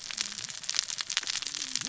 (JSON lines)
{"label": "biophony, cascading saw", "recorder": "SoundTrap 600 or HydroMoth"}